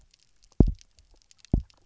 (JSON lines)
{"label": "biophony, double pulse", "recorder": "SoundTrap 300"}